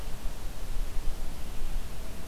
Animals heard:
forest ambience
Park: Marsh-Billings-Rockefeller National Historical Park